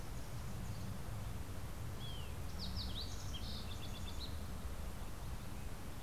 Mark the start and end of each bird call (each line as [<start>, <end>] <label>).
[0.00, 1.27] Wilson's Warbler (Cardellina pusilla)
[0.00, 5.38] Fox Sparrow (Passerella iliaca)